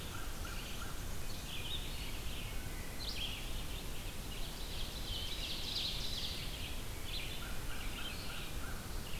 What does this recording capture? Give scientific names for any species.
Corvus brachyrhynchos, Mniotilta varia, Vireo olivaceus, Hylocichla mustelina, Seiurus aurocapilla